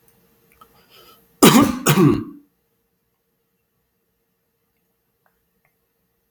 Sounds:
Cough